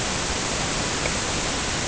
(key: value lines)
label: ambient
recorder: HydroMoth